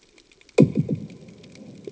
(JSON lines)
{"label": "anthrophony, bomb", "recorder": "HydroMoth"}